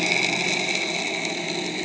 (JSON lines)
{"label": "anthrophony, boat engine", "recorder": "HydroMoth"}